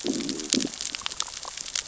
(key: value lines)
label: biophony, growl
recorder: SoundTrap 600 or HydroMoth